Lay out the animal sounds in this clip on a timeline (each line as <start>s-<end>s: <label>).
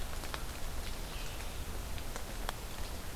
0.0s-3.2s: Scarlet Tanager (Piranga olivacea)